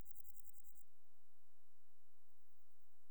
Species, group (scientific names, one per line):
Omocestus bolivari
Orthoptera